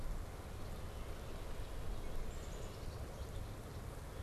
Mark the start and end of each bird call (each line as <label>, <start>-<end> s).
Black-capped Chickadee (Poecile atricapillus), 2.2-3.4 s